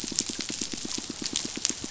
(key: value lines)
label: biophony, pulse
recorder: SoundTrap 500